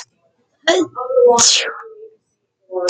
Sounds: Sneeze